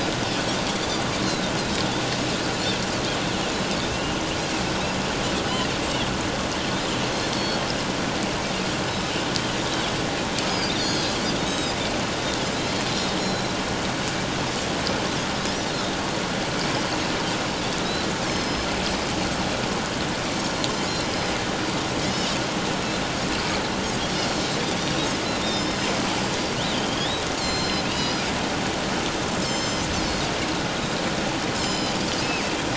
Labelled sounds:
1.2	1.5	Pacific white-sided dolphin, 3.9 to 4.3 kHz
3.9	4.2	Pacific white-sided dolphin, 2.6 to 3.0 kHz
7.3	7.6	Pacific white-sided dolphin, 4.3 to 4.5 kHz
8.9	9.1	Pacific white-sided dolphin, 3.8 to 5.3 kHz
10.5	11.7	Pacific white-sided dolphin, 3.3 to 7.7 kHz
13.2	13.6	Pacific white-sided dolphin, 3.8 to 4.2 kHz
15.4	15.7	Pacific white-sided dolphin, 5.1 to 5.9 kHz
17.8	18.7	Pacific white-sided dolphin, 3.8 to 6.4 kHz
21.1	21.3	Pacific white-sided dolphin, 5.0 to 5.2 kHz
24.8	25.0	Pacific white-sided dolphin, 5.7 to 5.9 kHz
25.4	25.9	Pacific white-sided dolphin, 5.0 to 5.6 kHz
26.7	28.2	Pacific white-sided dolphin, 2.6 to 7.4 kHz
29.4	29.9	Pacific white-sided dolphin, 3.0 to 7.4 kHz
31.6	32.0	Pacific white-sided dolphin, 3.0 to 7.5 kHz

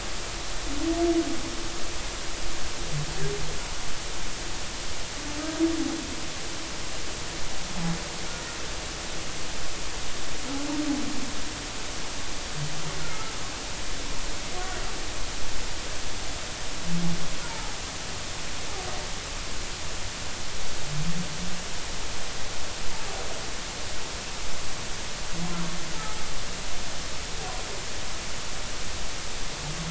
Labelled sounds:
17.4	17.7	humpback whale, 0.80 to 0.99 kHz

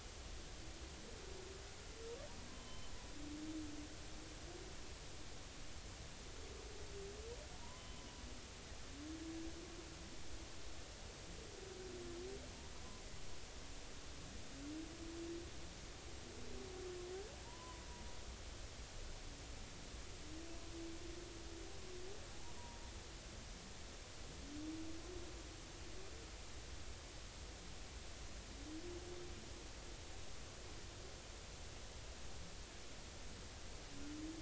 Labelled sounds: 2.5	2.9	humpback whale, 3.0 to 3.1 kHz
7.6	7.8	humpback whale, 0.90 to 1.1 kHz
17.4	17.8	humpback whale, 0.86 to 1.1 kHz
22.3	22.8	humpback whale, 0.80 to 1.1 kHz

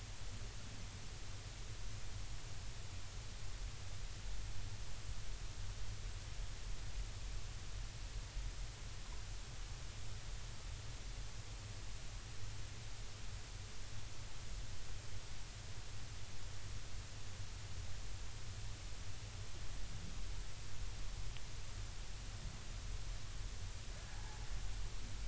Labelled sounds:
24.1	24.4	humpback whale, 0.80 to 0.99 kHz

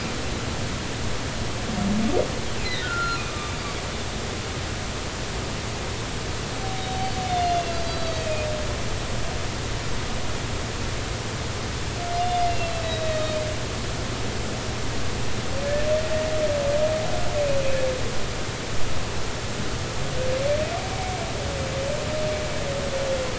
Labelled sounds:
2.6	3.5	humpback whale, 1.2 to 4.2 kHz
7.0	8.5	humpback whale, 2.4 to 4.7 kHz
12.2	13.4	humpback whale, 3.5 to 4.2 kHz

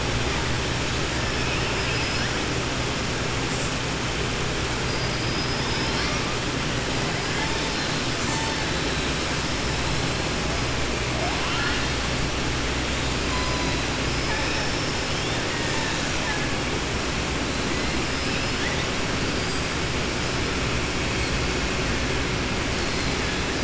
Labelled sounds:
1.4	2.3	killer whale, southern resident, 1.6 to 3.2 kHz
14.1	15.0	killer whale, southern resident, 4.8 to 5.5 kHz

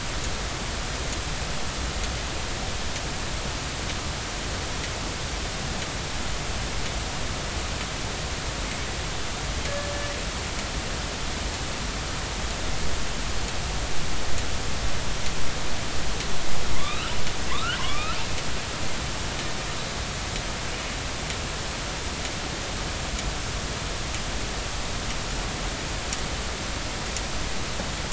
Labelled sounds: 16.7	18.2	killer whale, northern resident, A clan, AB subclan, call N16, 0.93 to 3.9 kHz

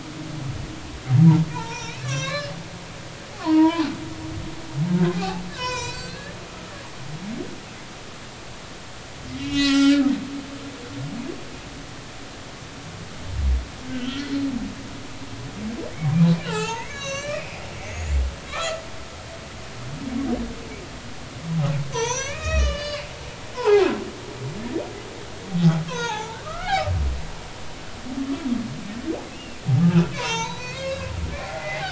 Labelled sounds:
1.5	2.5	humpback whale, 0.83 to 6.0 kHz
3.4	3.9	humpback whale, 0.83 to 1.2 kHz
5.1	7.2	humpback whale, 0.80 to 7.1 kHz
9.4	10.1	humpback whale, 1.2 to 6.8 kHz
14.1	14.4	humpback whale, 1.9 to 2.0 kHz
16.4	18.8	humpback whale, 0.80 to 7.5 kHz
21.9	23.9	humpback whale, 0.80 to 7.1 kHz
25.9	26.9	humpback whale, 0.80 to 4.2 kHz
30.1	31.8	humpback whale, 0.80 to 6.6 kHz

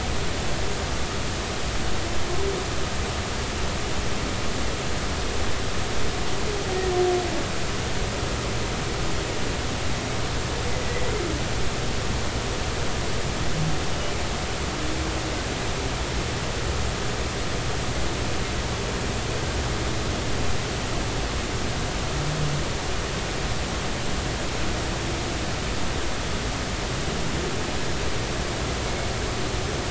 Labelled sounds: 10.8	11.1	humpback whale, 1.9 to 2.1 kHz

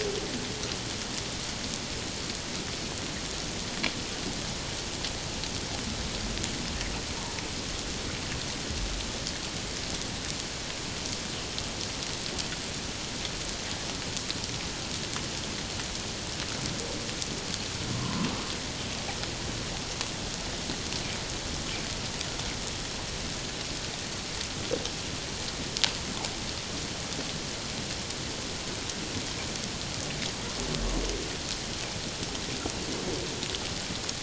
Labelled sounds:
17.9	18.3	humpback whale, 0.94 to 1.2 kHz

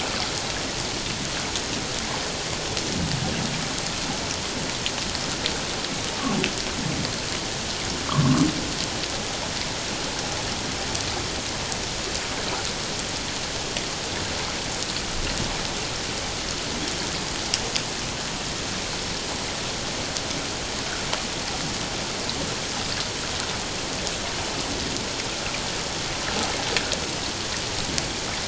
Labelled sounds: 8.1	8.4	humpback whale, 0.97 to 1.4 kHz

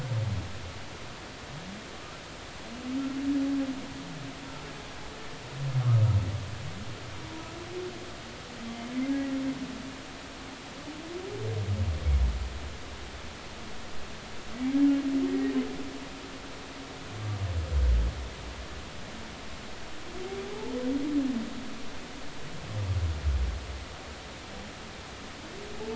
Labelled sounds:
9.1	9.4	humpback whale, 1.9 to 2.0 kHz
14.5	15.5	humpback whale, 1.8 to 2.2 kHz

